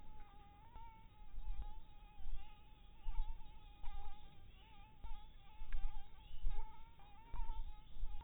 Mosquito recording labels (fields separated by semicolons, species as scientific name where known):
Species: Anopheles barbirostris; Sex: female; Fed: blood-fed; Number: one; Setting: cup